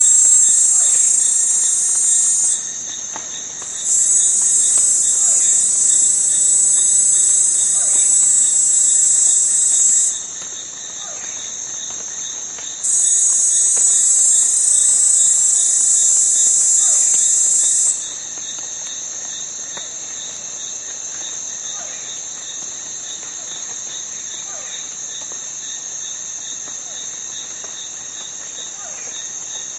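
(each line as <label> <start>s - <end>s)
A cricket buzzes loudly. 0.0s - 2.7s
Crickets are buzzing in the distance. 0.1s - 29.8s
A bird calls in the distance. 0.7s - 1.3s
A cricket buzzes loudly. 3.8s - 10.3s
A bird calls in the distance. 5.1s - 5.6s
A bird calls in the distance. 7.6s - 8.1s
A bird calls in the distance. 10.8s - 11.4s
Something is cracking nearby. 12.4s - 13.0s
A cricket buzzes loudly. 12.8s - 18.1s
A bird calls in the distance. 16.7s - 17.4s
A cracking sound. 19.3s - 20.2s
A bird calls in the distance. 21.6s - 22.2s
A bird calls in the distance. 24.4s - 24.9s
A bird calls in the distance. 28.7s - 29.3s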